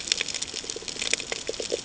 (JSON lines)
{"label": "ambient", "recorder": "HydroMoth"}